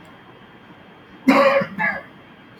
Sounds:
Sigh